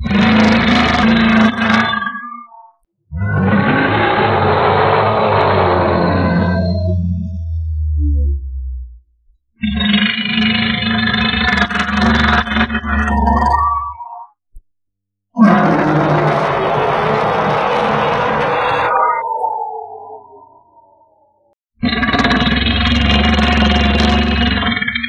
Are the animals making high pitched noises?
yes